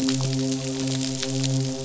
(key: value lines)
label: biophony, midshipman
recorder: SoundTrap 500